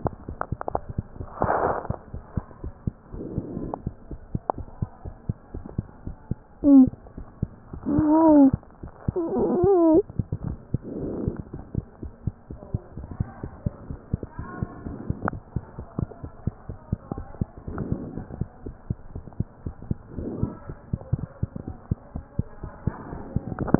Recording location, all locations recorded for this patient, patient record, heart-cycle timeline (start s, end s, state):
mitral valve (MV)
aortic valve (AV)+pulmonary valve (PV)+tricuspid valve (TV)+mitral valve (MV)
#Age: Child
#Sex: Male
#Height: 108.0 cm
#Weight: 23.8 kg
#Pregnancy status: False
#Murmur: Absent
#Murmur locations: nan
#Most audible location: nan
#Systolic murmur timing: nan
#Systolic murmur shape: nan
#Systolic murmur grading: nan
#Systolic murmur pitch: nan
#Systolic murmur quality: nan
#Diastolic murmur timing: nan
#Diastolic murmur shape: nan
#Diastolic murmur grading: nan
#Diastolic murmur pitch: nan
#Diastolic murmur quality: nan
#Outcome: Normal
#Campaign: 2015 screening campaign
0.00	11.76	unannotated
11.76	11.83	S2
11.83	12.00	diastole
12.00	12.11	S1
12.11	12.24	systole
12.24	12.32	S2
12.32	12.49	diastole
12.49	12.57	S1
12.57	12.71	systole
12.71	12.79	S2
12.79	12.95	diastole
12.95	13.02	S1
13.02	13.18	systole
13.18	13.24	S2
13.24	13.40	diastole
13.40	13.50	S1
13.50	13.63	systole
13.63	13.71	S2
13.71	13.88	diastole
13.88	13.99	S1
13.99	14.11	systole
14.11	14.17	S2
14.17	14.37	diastole
14.37	14.46	S1
14.46	14.60	systole
14.60	14.66	S2
14.66	14.85	diastole
14.85	14.93	S1
14.93	15.08	systole
15.08	15.13	S2
15.13	15.32	diastole
15.32	15.41	S1
15.41	15.54	systole
15.54	15.60	S2
15.60	15.77	diastole
15.77	15.84	S1
15.84	16.00	systole
16.00	16.06	S2
16.06	16.22	diastole
16.22	16.29	S1
16.29	16.44	systole
16.44	16.51	S2
16.51	16.67	diastole
16.67	16.76	S1
16.76	16.90	systole
16.90	16.96	S2
16.96	17.15	diastole
17.15	17.24	S1
17.24	17.40	systole
17.40	17.47	S2
17.47	17.67	diastole
17.67	17.73	S1
17.73	17.91	systole
17.91	17.97	S2
17.97	18.16	diastole
18.16	18.24	S1
18.24	18.38	systole
18.38	18.45	S2
18.45	18.63	diastole
18.63	18.71	S1
18.71	18.89	systole
18.89	18.93	S2
18.93	19.14	diastole
19.14	19.21	S1
19.21	19.36	systole
19.36	19.45	S2
19.45	19.65	diastole
19.65	19.73	S1
19.73	19.88	systole
19.88	19.96	S2
19.96	20.15	diastole
20.15	20.27	S1
20.27	20.40	systole
20.40	20.47	S2
20.47	20.67	diastole
20.67	20.73	S1
20.73	20.92	systole
20.92	21.00	S2
21.00	21.17	diastole
21.17	21.29	S1
21.29	23.79	unannotated